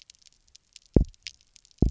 {"label": "biophony, double pulse", "recorder": "SoundTrap 300"}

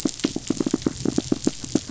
{"label": "biophony", "recorder": "SoundTrap 500"}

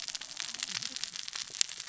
{"label": "biophony, cascading saw", "recorder": "SoundTrap 600 or HydroMoth"}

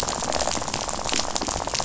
{"label": "biophony, rattle", "recorder": "SoundTrap 500"}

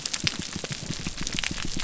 {"label": "biophony, grouper groan", "recorder": "SoundTrap 300"}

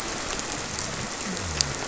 {"label": "biophony", "recorder": "SoundTrap 300"}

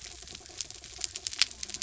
{"label": "biophony", "recorder": "SoundTrap 300"}
{"label": "anthrophony, mechanical", "recorder": "SoundTrap 300"}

